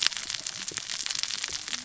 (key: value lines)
label: biophony, cascading saw
recorder: SoundTrap 600 or HydroMoth